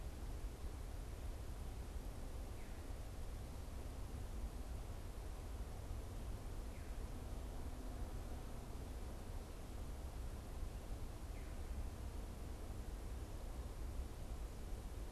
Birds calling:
Veery (Catharus fuscescens)

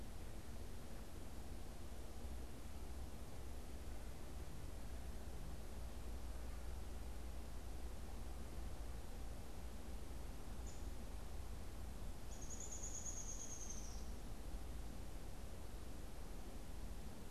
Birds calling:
Downy Woodpecker (Dryobates pubescens)

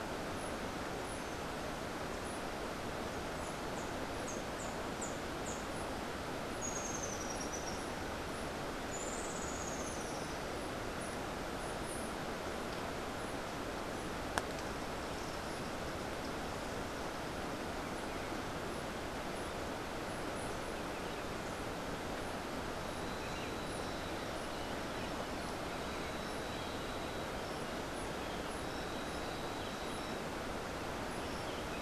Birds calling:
Rufous-tailed Hummingbird (Amazilia tzacatl)

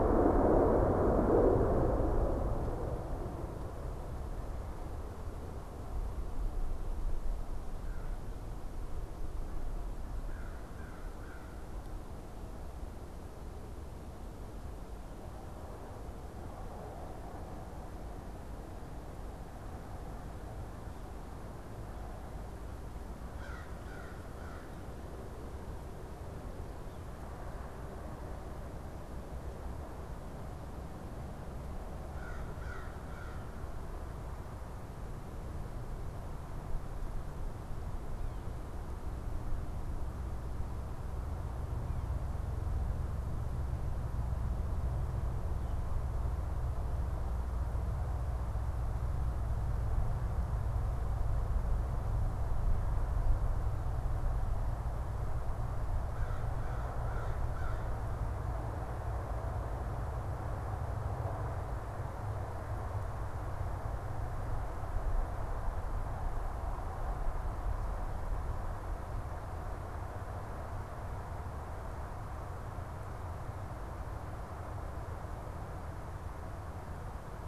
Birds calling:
American Crow (Corvus brachyrhynchos)

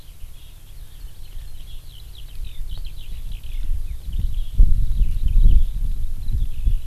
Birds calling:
Eurasian Skylark (Alauda arvensis)

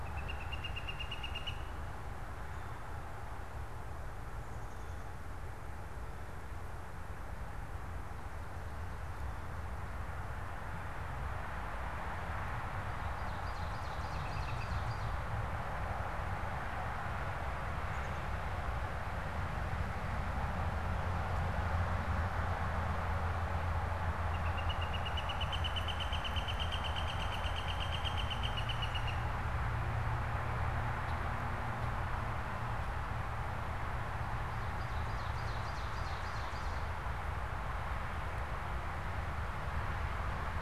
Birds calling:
Northern Flicker (Colaptes auratus)
Ovenbird (Seiurus aurocapilla)

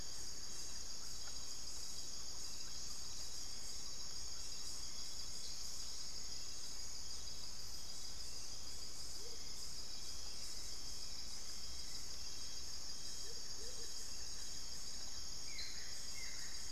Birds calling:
Amazonian Motmot (Momotus momota)
Thrush-like Wren (Campylorhynchus turdinus)
Buff-throated Woodcreeper (Xiphorhynchus guttatus)
Hauxwell's Thrush (Turdus hauxwelli)
unidentified bird

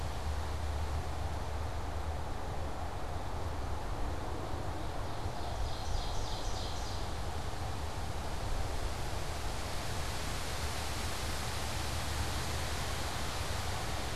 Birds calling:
Ovenbird (Seiurus aurocapilla)

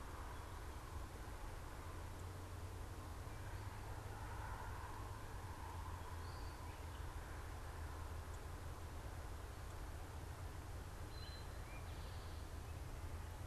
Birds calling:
Eastern Towhee (Pipilo erythrophthalmus)

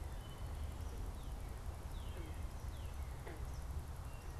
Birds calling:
Northern Cardinal (Cardinalis cardinalis)

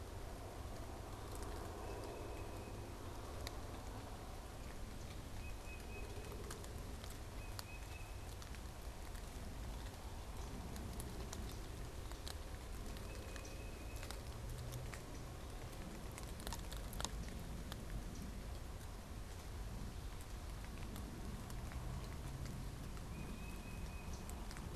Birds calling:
Tufted Titmouse (Baeolophus bicolor)

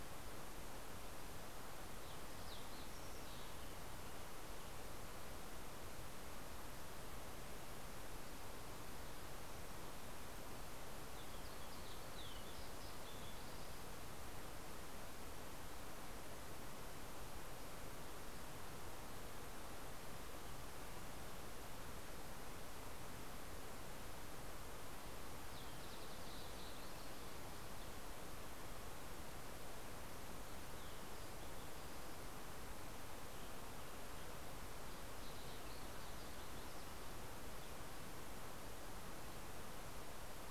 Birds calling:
Fox Sparrow (Passerella iliaca)
Western Tanager (Piranga ludoviciana)

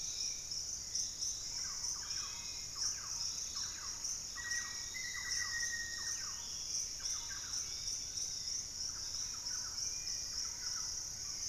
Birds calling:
Black-faced Antthrush (Formicarius analis)
unidentified bird
Thrush-like Wren (Campylorhynchus turdinus)
Hauxwell's Thrush (Turdus hauxwelli)
Dusky-capped Flycatcher (Myiarchus tuberculifer)
Yellow-margined Flycatcher (Tolmomyias assimilis)
Piratic Flycatcher (Legatus leucophaius)
Fasciated Antshrike (Cymbilaimus lineatus)
Pygmy Antwren (Myrmotherula brachyura)

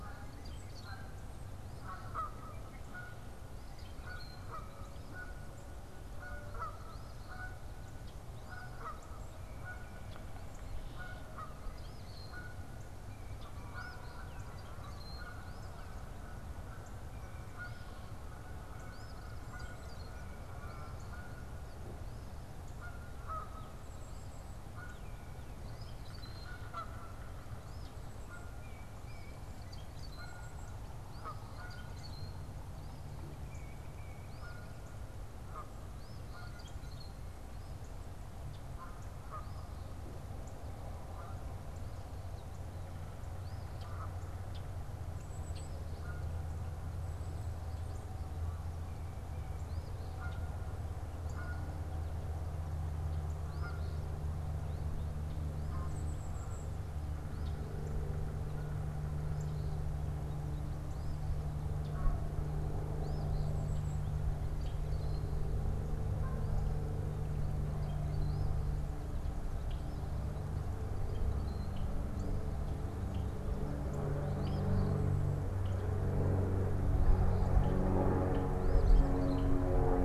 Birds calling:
Canada Goose (Branta canadensis)
unidentified bird
Golden-crowned Kinglet (Regulus satrapa)
Rusty Blackbird (Euphagus carolinus)
Eastern Phoebe (Sayornis phoebe)

